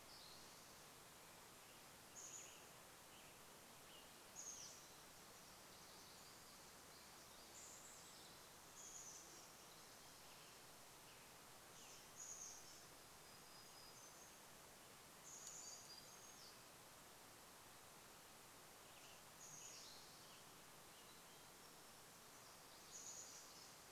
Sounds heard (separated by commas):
Western Tanager song, Chestnut-backed Chickadee call, unidentified sound, Spotted Towhee song, warbler song